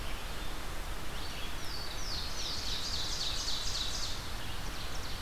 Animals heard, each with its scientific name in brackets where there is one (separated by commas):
Red-eyed Vireo (Vireo olivaceus), Ovenbird (Seiurus aurocapilla), Louisiana Waterthrush (Parkesia motacilla)